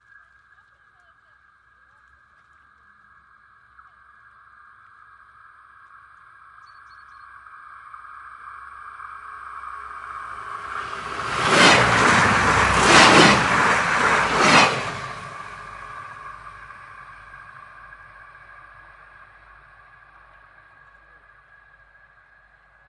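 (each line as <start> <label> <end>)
0.0 A train is approaching at very high speed. 10.8
10.8 A train passes by at very high speed. 15.3
15.2 A train is departing at high speed. 22.9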